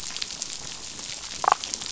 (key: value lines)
label: biophony, damselfish
recorder: SoundTrap 500